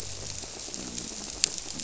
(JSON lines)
{"label": "biophony", "recorder": "SoundTrap 300"}